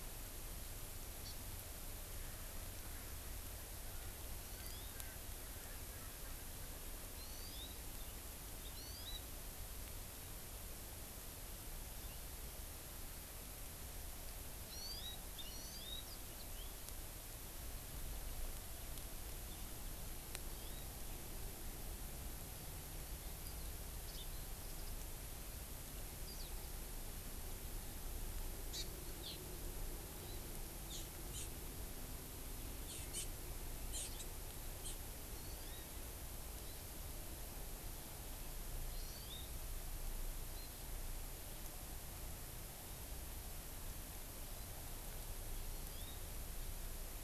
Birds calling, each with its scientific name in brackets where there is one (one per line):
Erckel's Francolin (Pternistis erckelii)
House Finch (Haemorhous mexicanus)
Hawaii Amakihi (Chlorodrepanis virens)